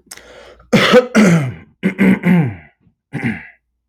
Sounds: Throat clearing